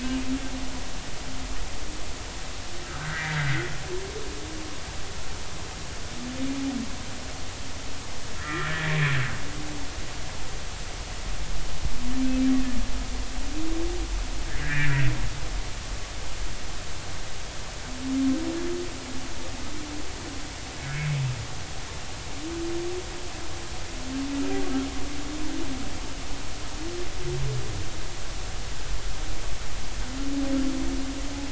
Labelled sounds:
2.8	3.7	humpback whale, 1.2 to 2.1 kHz
8.4	9.0	humpback whale, 1.2 to 2.0 kHz
14.5	15.0	humpback whale, 1.3 to 2.1 kHz
20.8	21.1	humpback whale, 1.6 to 1.7 kHz

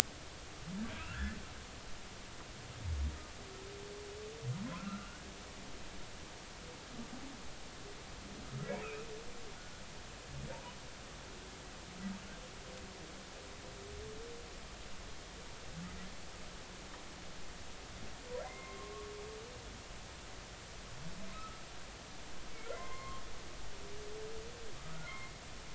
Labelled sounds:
1.0	1.4	humpback whale, 1.2 to 1.8 kHz
4.7	5.2	humpback whale, 1.2 to 1.5 kHz
8.8	9.1	humpback whale, 2.2 to 2.8 kHz
18.4	18.9	humpback whale, 0.96 to 2.2 kHz
21.3	21.6	humpback whale, 1.2 to 1.4 kHz
22.7	23.2	humpback whale, 0.99 to 2.2 kHz
25.0	25.3	humpback whale, 2.0 to 2.2 kHz

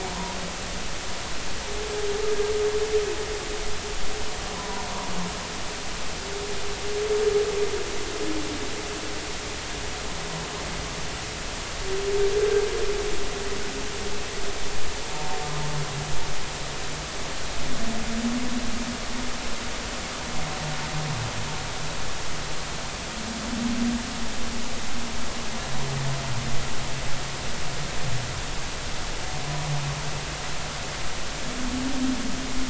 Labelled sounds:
4.6	4.9	humpback whale, 0.90 to 1.1 kHz
15.1	15.4	humpback whale, 0.86 to 0.93 kHz

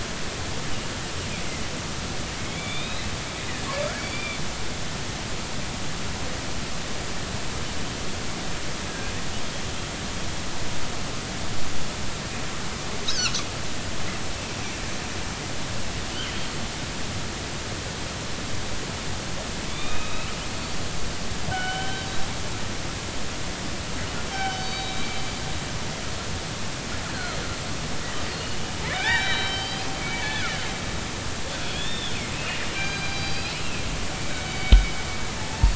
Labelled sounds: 2.4	3.1	killer whale, northern resident, G clan, 2.1 to 4.1 kHz
3.9	4.4	killer whale, northern resident, G clan, 2.2 to 4.8 kHz
8.9	9.1	killer whale, northern resident, G clan, 1.5 to 1.7 kHz
13.1	13.4	killer whale, northern resident, G clan, 3.8 to 6.6 kHz
16.1	16.5	killer whale, northern resident, G clan, 2.8 to 3.3 kHz
19.7	20.3	killer whale, northern resident, A clan, AB subclan, call N16, 1.2 to 3.8 kHz
20.5	20.8	killer whale, northern resident, G clan, 4.4 to 4.7 kHz
21.5	22.1	killer whale, northern resident, G clan, 1.4 to 3.2 kHz
24.3	25.1	killer whale, northern resident, G clan, call N24ii, 1.5 to 4.7 kHz
27.1	27.4	killer whale, northern resident, G clan, 1.2 to 4.3 kHz
28.3	30.4	killer whale, northern resident, G clan, 0.80 to 4.9 kHz
31.7	33.5	killer whale, northern resident, G clan, 1.5 to 5.1 kHz
34.1	35.7	killer whale, northern resident, G clan, 0.80 to 3.9 kHz

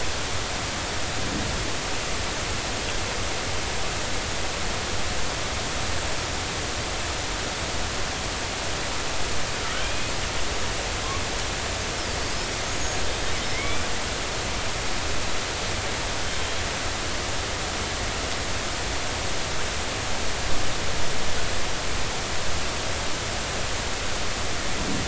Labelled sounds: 12.6	13.0	killer whale, northern resident, G clan, 6.3 to 6.8 kHz
13.5	13.8	killer whale, northern resident, G clan, 2.0 to 2.4 kHz
16.2	16.6	killer whale, northern resident, G clan, 3.0 to 3.3 kHz

